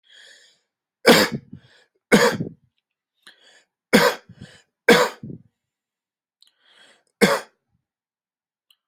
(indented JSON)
{
  "expert_labels": [
    {
      "quality": "ok",
      "cough_type": "dry",
      "dyspnea": false,
      "wheezing": false,
      "stridor": false,
      "choking": false,
      "congestion": false,
      "nothing": true,
      "diagnosis": "COVID-19",
      "severity": "mild"
    }
  ],
  "age": 29,
  "gender": "male",
  "respiratory_condition": false,
  "fever_muscle_pain": false,
  "status": "healthy"
}